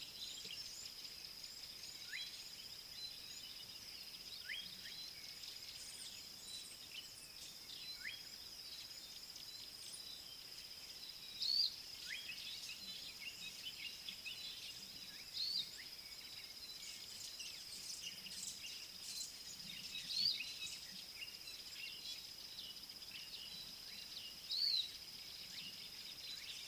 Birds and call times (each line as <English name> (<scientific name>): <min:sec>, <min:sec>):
Pale White-eye (Zosterops flavilateralis): 0:11.6, 0:24.6